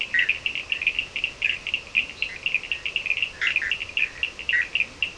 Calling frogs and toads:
Leptodactylus latrans, Sphaenorhynchus surdus, Boana leptolineata, Boana bischoffi
Atlantic Forest, 4:30am

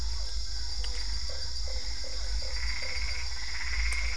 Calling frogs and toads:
Physalaemus cuvieri, Boana lundii, Dendropsophus cruzi, Boana albopunctata
Cerrado, 8pm

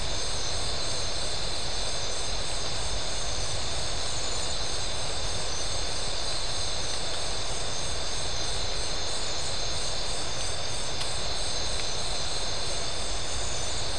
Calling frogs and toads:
none
Brazil, 11:30pm

